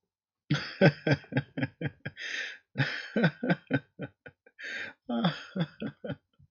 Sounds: Laughter